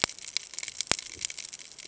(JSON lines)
{"label": "ambient", "recorder": "HydroMoth"}